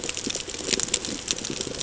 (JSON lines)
{"label": "ambient", "recorder": "HydroMoth"}